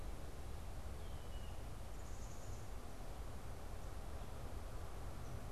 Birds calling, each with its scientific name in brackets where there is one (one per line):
Blue Jay (Cyanocitta cristata)
Black-capped Chickadee (Poecile atricapillus)